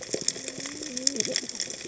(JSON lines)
{"label": "biophony, cascading saw", "recorder": "HydroMoth"}